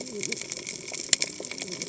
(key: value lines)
label: biophony, cascading saw
recorder: HydroMoth